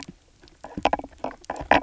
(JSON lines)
{"label": "biophony, knock croak", "recorder": "SoundTrap 300"}